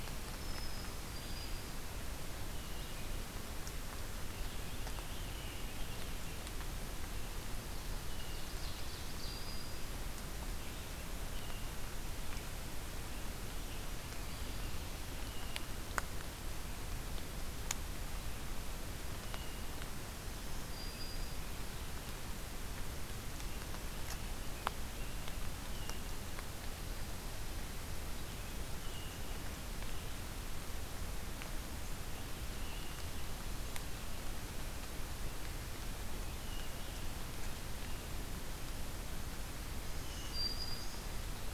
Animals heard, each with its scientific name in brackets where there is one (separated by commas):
Hermit Thrush (Catharus guttatus), Ovenbird (Seiurus aurocapilla), Black-throated Green Warbler (Setophaga virens)